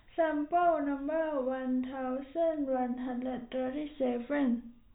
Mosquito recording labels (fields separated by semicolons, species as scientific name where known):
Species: no mosquito; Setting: cup